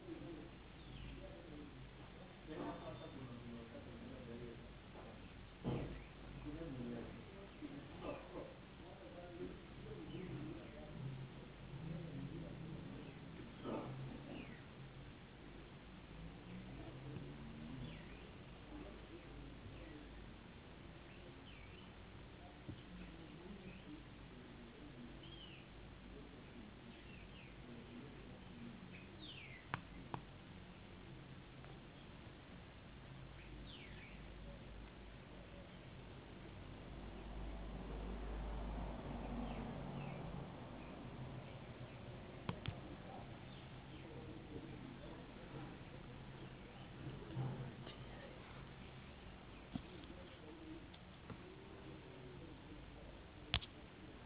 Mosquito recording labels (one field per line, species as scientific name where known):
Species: no mosquito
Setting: insect culture